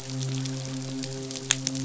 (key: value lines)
label: biophony, midshipman
recorder: SoundTrap 500